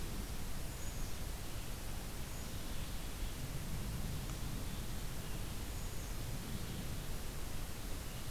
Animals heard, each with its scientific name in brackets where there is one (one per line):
Black-capped Chickadee (Poecile atricapillus)